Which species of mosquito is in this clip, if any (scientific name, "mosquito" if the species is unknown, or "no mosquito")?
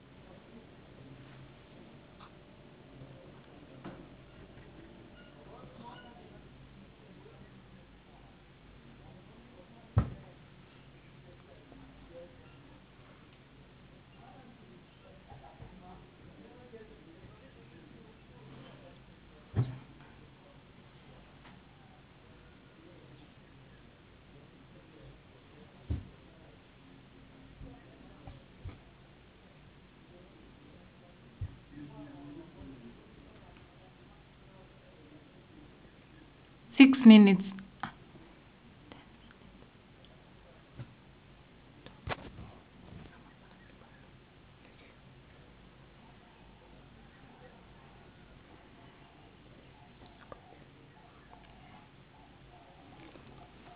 no mosquito